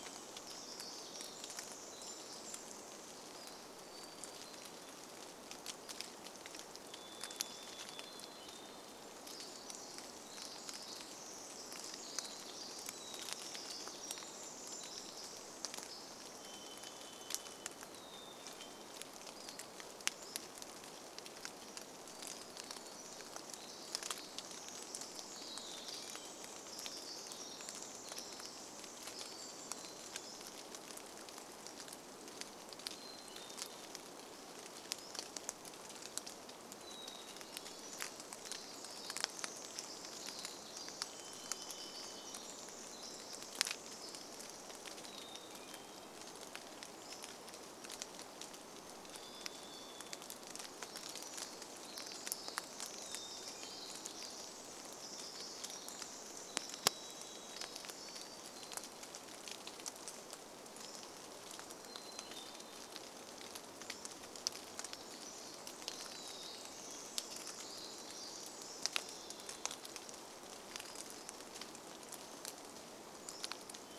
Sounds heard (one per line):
Hermit Thrush song
unidentified sound
Pacific-slope Flycatcher song
Pacific Wren song
rain
Varied Thrush song
Golden-crowned Kinglet song
Pacific-slope Flycatcher call